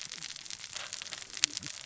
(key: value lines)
label: biophony, cascading saw
recorder: SoundTrap 600 or HydroMoth